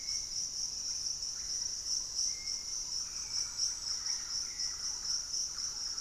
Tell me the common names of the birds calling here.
Hauxwell's Thrush, Russet-backed Oropendola, Thrush-like Wren